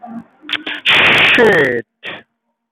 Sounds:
Sigh